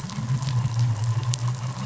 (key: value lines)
label: anthrophony, boat engine
recorder: SoundTrap 500